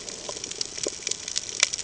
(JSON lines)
{"label": "ambient", "recorder": "HydroMoth"}